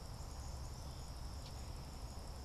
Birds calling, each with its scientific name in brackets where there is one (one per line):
Black-capped Chickadee (Poecile atricapillus)
Common Yellowthroat (Geothlypis trichas)